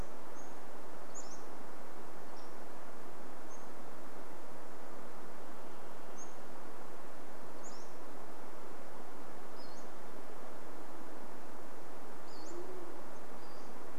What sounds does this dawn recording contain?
Pacific-slope Flycatcher song, Varied Thrush song, Band-tailed Pigeon call